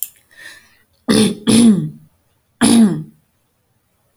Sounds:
Throat clearing